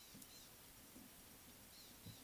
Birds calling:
Eastern Violet-backed Sunbird (Anthreptes orientalis)

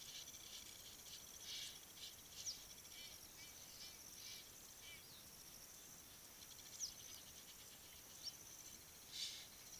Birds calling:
Egyptian Goose (Alopochen aegyptiaca), Blacksmith Lapwing (Vanellus armatus)

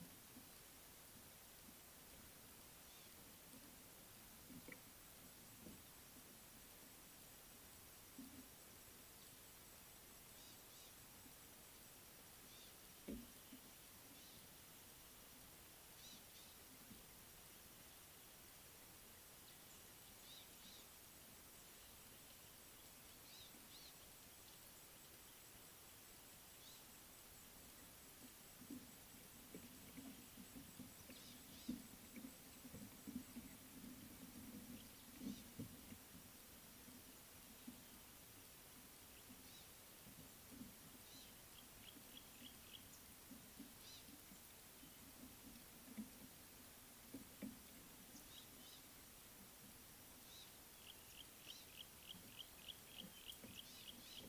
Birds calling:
Yellow-breasted Apalis (Apalis flavida), Eastern Violet-backed Sunbird (Anthreptes orientalis)

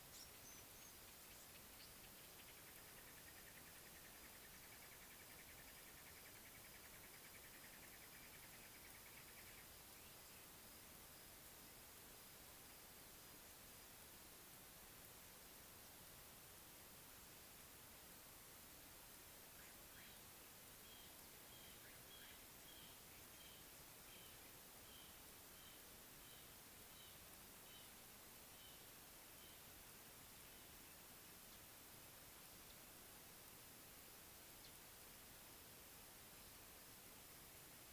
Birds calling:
Red-fronted Barbet (Tricholaema diademata), Brown Babbler (Turdoides plebejus)

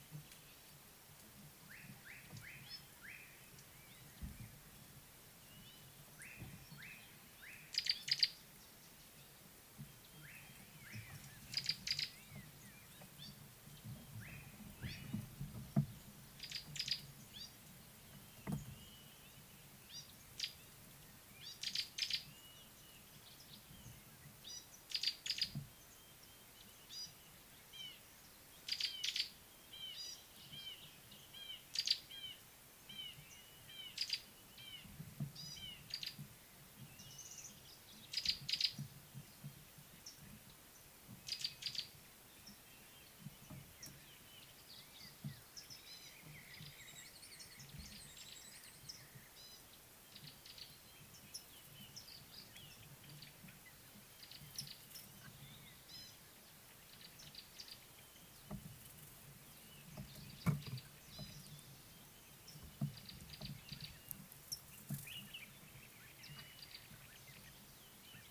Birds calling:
Gray-backed Camaroptera (Camaroptera brevicaudata), Slate-colored Boubou (Laniarius funebris), Red-fronted Barbet (Tricholaema diademata), Brown-crowned Tchagra (Tchagra australis), Common Bulbul (Pycnonotus barbatus)

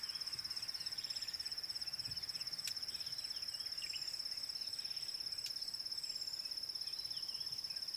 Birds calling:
Rattling Cisticola (Cisticola chiniana)

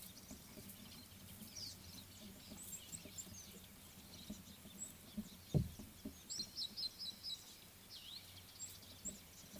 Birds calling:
Meyer's Parrot (Poicephalus meyeri)

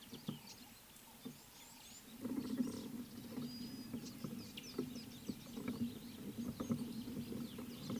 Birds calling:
Red-cheeked Cordonbleu (Uraeginthus bengalus)

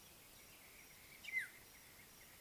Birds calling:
Brown-crowned Tchagra (Tchagra australis)

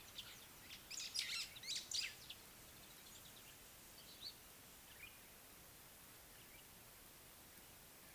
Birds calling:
Scarlet-chested Sunbird (Chalcomitra senegalensis), White-browed Sparrow-Weaver (Plocepasser mahali)

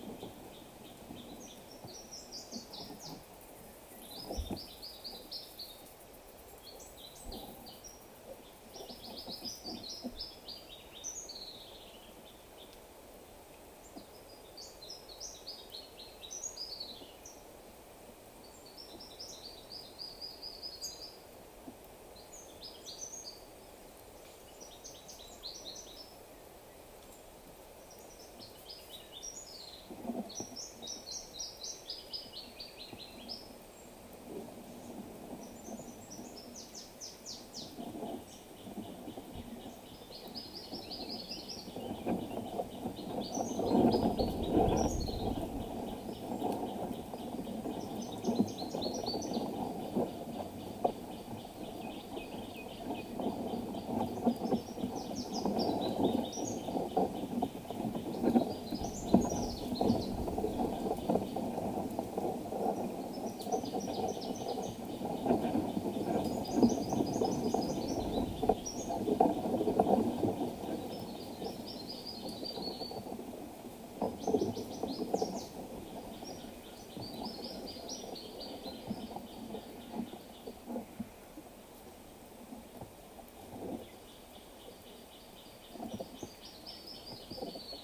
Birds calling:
Gray Apalis (Apalis cinerea), Brown Woodland-Warbler (Phylloscopus umbrovirens), Common Bulbul (Pycnonotus barbatus)

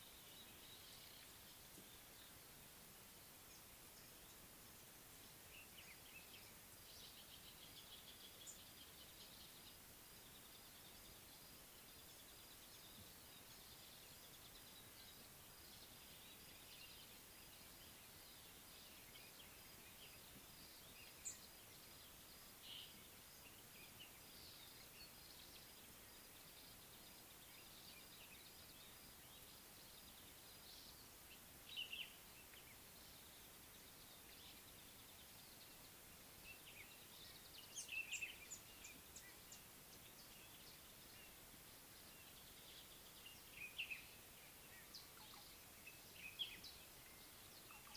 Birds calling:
Northern Puffback (Dryoscopus gambensis), Slate-colored Boubou (Laniarius funebris), Common Bulbul (Pycnonotus barbatus), Speckled Mousebird (Colius striatus)

